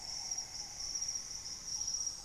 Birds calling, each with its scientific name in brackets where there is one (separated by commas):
Green Ibis (Mesembrinibis cayennensis)